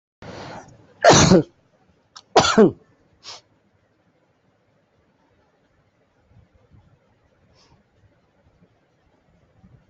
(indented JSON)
{
  "expert_labels": [
    {
      "quality": "good",
      "cough_type": "dry",
      "dyspnea": false,
      "wheezing": false,
      "stridor": false,
      "choking": false,
      "congestion": true,
      "nothing": false,
      "diagnosis": "upper respiratory tract infection",
      "severity": "mild"
    }
  ],
  "age": 45,
  "gender": "male",
  "respiratory_condition": false,
  "fever_muscle_pain": false,
  "status": "symptomatic"
}